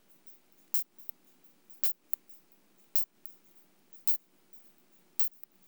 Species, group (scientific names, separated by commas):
Isophya pyrenaea, Orthoptera